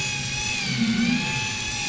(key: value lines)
label: anthrophony, boat engine
recorder: SoundTrap 500